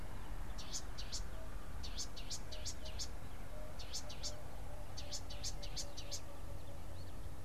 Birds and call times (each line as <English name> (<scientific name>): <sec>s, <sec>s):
Variable Sunbird (Cinnyris venustus): 1.1s